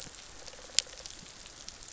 {"label": "biophony", "recorder": "SoundTrap 500"}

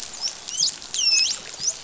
{"label": "biophony, dolphin", "recorder": "SoundTrap 500"}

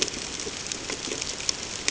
{"label": "ambient", "recorder": "HydroMoth"}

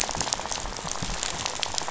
{"label": "biophony, rattle", "recorder": "SoundTrap 500"}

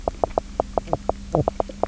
{"label": "biophony, knock croak", "recorder": "SoundTrap 300"}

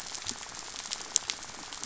{"label": "biophony, rattle", "recorder": "SoundTrap 500"}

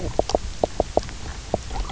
{"label": "biophony, knock croak", "recorder": "SoundTrap 300"}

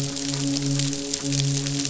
{"label": "biophony, midshipman", "recorder": "SoundTrap 500"}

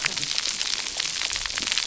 {"label": "biophony, cascading saw", "recorder": "SoundTrap 300"}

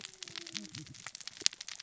{"label": "biophony, cascading saw", "recorder": "SoundTrap 600 or HydroMoth"}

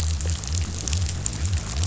{"label": "biophony", "recorder": "SoundTrap 500"}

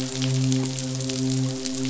{"label": "biophony, midshipman", "recorder": "SoundTrap 500"}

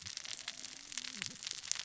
{"label": "biophony, cascading saw", "recorder": "SoundTrap 600 or HydroMoth"}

